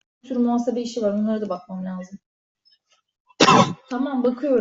{"expert_labels": [{"quality": "poor", "cough_type": "dry", "dyspnea": false, "wheezing": false, "stridor": false, "choking": false, "congestion": false, "nothing": true, "diagnosis": "upper respiratory tract infection", "severity": "unknown"}], "age": 46, "gender": "male", "respiratory_condition": false, "fever_muscle_pain": false, "status": "healthy"}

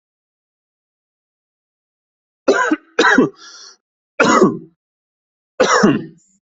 {"expert_labels": [{"quality": "good", "cough_type": "dry", "dyspnea": false, "wheezing": false, "stridor": false, "choking": false, "congestion": false, "nothing": true, "diagnosis": "upper respiratory tract infection", "severity": "mild"}], "age": 32, "gender": "male", "respiratory_condition": false, "fever_muscle_pain": false, "status": "COVID-19"}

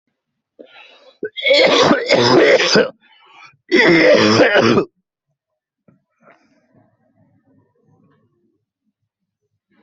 {"expert_labels": [{"quality": "good", "cough_type": "wet", "dyspnea": false, "wheezing": false, "stridor": false, "choking": false, "congestion": false, "nothing": true, "diagnosis": "lower respiratory tract infection", "severity": "severe"}], "age": 29, "gender": "male", "respiratory_condition": false, "fever_muscle_pain": true, "status": "COVID-19"}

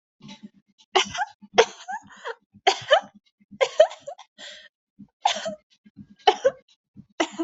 {"expert_labels": [{"quality": "ok", "cough_type": "unknown", "dyspnea": false, "wheezing": false, "stridor": false, "choking": false, "congestion": false, "nothing": true, "diagnosis": "healthy cough", "severity": "pseudocough/healthy cough"}], "age": 50, "gender": "female", "respiratory_condition": true, "fever_muscle_pain": true, "status": "COVID-19"}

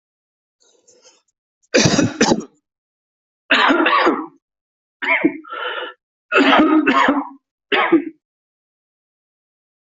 {"expert_labels": [{"quality": "ok", "cough_type": "dry", "dyspnea": false, "wheezing": false, "stridor": false, "choking": false, "congestion": false, "nothing": true, "diagnosis": "lower respiratory tract infection", "severity": "mild"}], "age": 34, "gender": "male", "respiratory_condition": true, "fever_muscle_pain": false, "status": "symptomatic"}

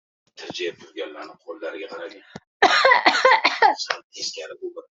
{"expert_labels": [{"quality": "poor", "cough_type": "dry", "dyspnea": false, "wheezing": false, "stridor": false, "choking": false, "congestion": false, "nothing": true, "diagnosis": "upper respiratory tract infection", "severity": "unknown"}]}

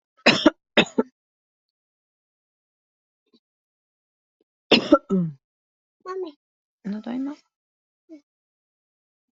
{"expert_labels": [{"quality": "good", "cough_type": "dry", "dyspnea": false, "wheezing": false, "stridor": false, "choking": false, "congestion": false, "nothing": true, "diagnosis": "upper respiratory tract infection", "severity": "mild"}], "age": 37, "gender": "female", "respiratory_condition": false, "fever_muscle_pain": false, "status": "COVID-19"}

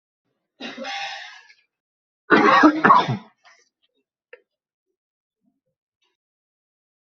{"expert_labels": [{"quality": "poor", "cough_type": "dry", "dyspnea": false, "wheezing": false, "stridor": false, "choking": false, "congestion": false, "nothing": true, "diagnosis": "upper respiratory tract infection", "severity": "mild"}]}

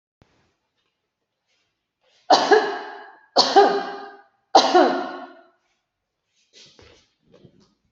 {"expert_labels": [{"quality": "good", "cough_type": "dry", "dyspnea": false, "wheezing": false, "stridor": false, "choking": false, "congestion": false, "nothing": true, "diagnosis": "healthy cough", "severity": "pseudocough/healthy cough"}], "age": 45, "gender": "female", "respiratory_condition": true, "fever_muscle_pain": false, "status": "symptomatic"}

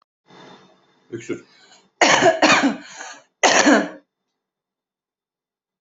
{"expert_labels": [{"quality": "ok", "cough_type": "wet", "dyspnea": false, "wheezing": false, "stridor": false, "choking": false, "congestion": false, "nothing": true, "diagnosis": "lower respiratory tract infection", "severity": "mild"}], "age": 44, "gender": "female", "respiratory_condition": false, "fever_muscle_pain": false, "status": "healthy"}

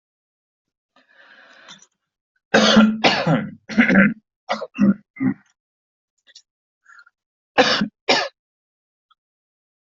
{"expert_labels": [{"quality": "good", "cough_type": "dry", "dyspnea": false, "wheezing": false, "stridor": false, "choking": false, "congestion": false, "nothing": true, "diagnosis": "upper respiratory tract infection", "severity": "mild"}], "age": 53, "gender": "male", "respiratory_condition": false, "fever_muscle_pain": false, "status": "healthy"}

